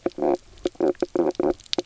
{"label": "biophony, knock croak", "recorder": "SoundTrap 300"}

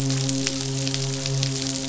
{"label": "biophony, midshipman", "recorder": "SoundTrap 500"}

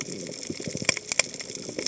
{"label": "biophony, cascading saw", "recorder": "HydroMoth"}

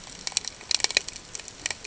{"label": "ambient", "recorder": "HydroMoth"}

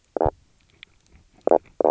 {"label": "biophony, knock croak", "recorder": "SoundTrap 300"}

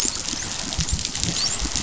{"label": "biophony, dolphin", "recorder": "SoundTrap 500"}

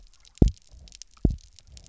{"label": "biophony, double pulse", "recorder": "SoundTrap 300"}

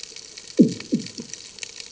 {"label": "anthrophony, bomb", "recorder": "HydroMoth"}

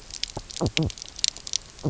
{"label": "biophony, knock croak", "recorder": "SoundTrap 300"}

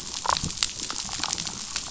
{"label": "biophony, damselfish", "recorder": "SoundTrap 500"}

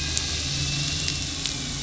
{"label": "anthrophony, boat engine", "recorder": "SoundTrap 500"}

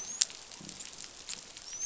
{"label": "biophony, dolphin", "recorder": "SoundTrap 500"}
{"label": "biophony", "recorder": "SoundTrap 500"}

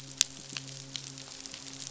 {"label": "biophony, midshipman", "recorder": "SoundTrap 500"}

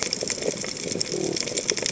{"label": "biophony", "recorder": "HydroMoth"}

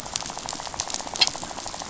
{"label": "biophony, rattle", "recorder": "SoundTrap 500"}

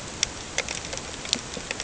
{"label": "ambient", "recorder": "HydroMoth"}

